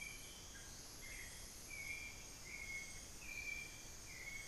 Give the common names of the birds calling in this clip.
Amazonian Grosbeak, Hauxwell's Thrush, unidentified bird